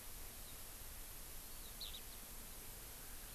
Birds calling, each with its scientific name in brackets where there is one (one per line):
Eurasian Skylark (Alauda arvensis)
Warbling White-eye (Zosterops japonicus)